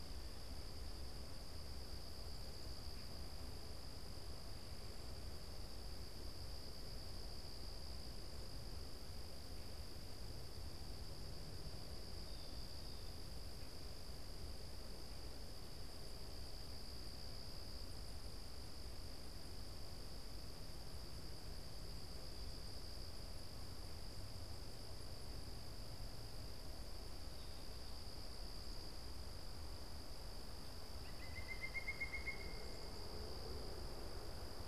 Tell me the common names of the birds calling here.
Pileated Woodpecker